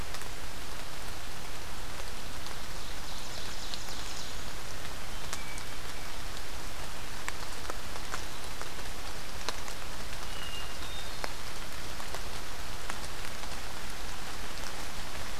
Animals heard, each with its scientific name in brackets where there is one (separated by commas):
Ovenbird (Seiurus aurocapilla), Hermit Thrush (Catharus guttatus)